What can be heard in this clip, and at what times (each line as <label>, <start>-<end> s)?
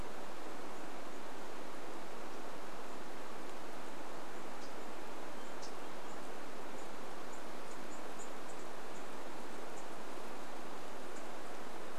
unidentified bird chip note, 0-12 s
Hermit Thrush song, 4-6 s